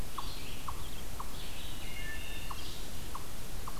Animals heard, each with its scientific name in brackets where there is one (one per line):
Hermit Thrush (Catharus guttatus)
unknown mammal
Wood Thrush (Hylocichla mustelina)
Red-eyed Vireo (Vireo olivaceus)